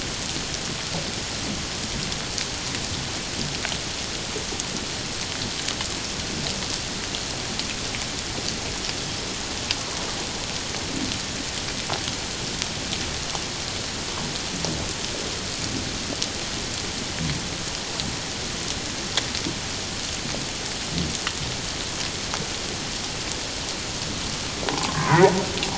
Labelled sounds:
24.7	25.3	humpback whale, 0.78 to 1.2 kHz

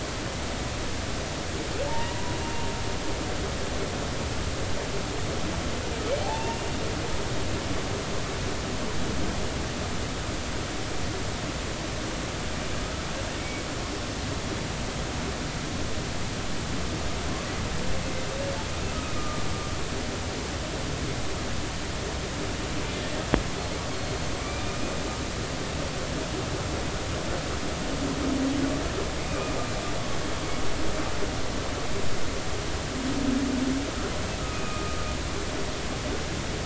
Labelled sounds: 1.9	2.3	humpback whale, 0.83 to 2.0 kHz
6.2	6.8	humpback whale, 2.6 to 2.8 kHz
7.2	7.6	humpback whale, 0.80 to 0.99 kHz
13.4	13.6	humpback whale, 2.2 to 2.3 kHz
19.1	19.4	humpback whale, 1.15 to 1.25 kHz
24.4	24.6	humpback whale, 2.2 to 2.4 kHz
29.2	29.6	humpback whale, 2.3 to 2.7 kHz
34.5	35.0	humpback whale, 1.1 to 2.6 kHz

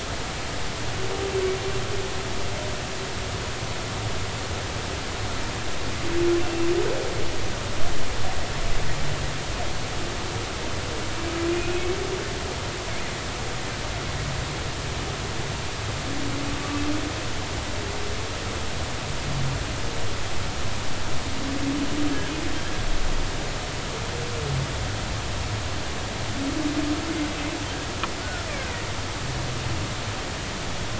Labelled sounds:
6.4	6.7	humpback whale, 2.6 to 2.8 kHz
28.2	28.5	killer whale, Bigg's (transient), 1.3 to 1.5 kHz

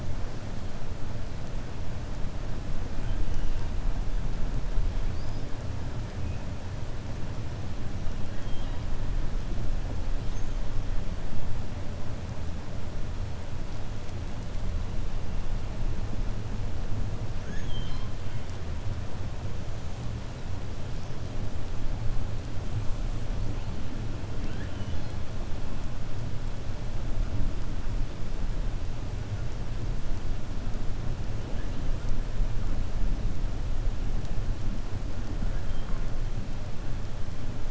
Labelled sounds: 8.3	8.8	killer whale, 1.6 to 3.9 kHz
17.3	18.1	killer whale, 1.0 to 5.2 kHz
35.4	36.0	killer whale, 1.0 to 3.3 kHz

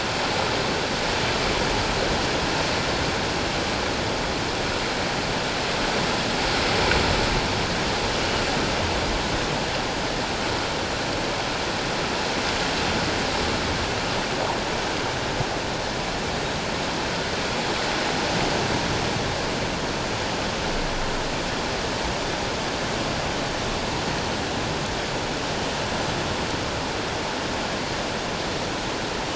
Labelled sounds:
8.1	8.4	Pacific white-sided dolphin, 2.8 to 3.1 kHz

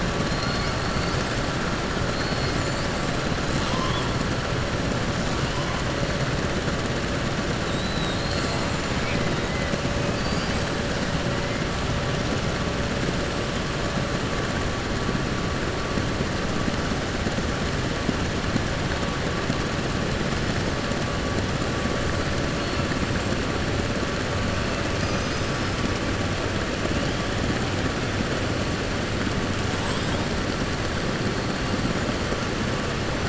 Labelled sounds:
3.5	4.1	killer whale, 2.7 to 5.0 kHz
7.6	8.7	killer whale, 3.4 to 5.1 kHz
24.9	25.7	killer whale, 4.2 to 6.4 kHz

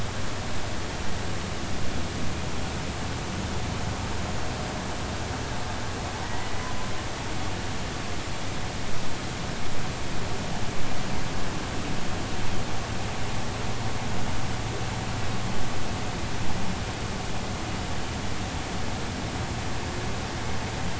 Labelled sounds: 6.2	6.7	humpback whale, 1.8 to 2.0 kHz

